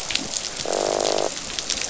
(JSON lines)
{"label": "biophony, croak", "recorder": "SoundTrap 500"}